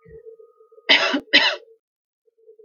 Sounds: Cough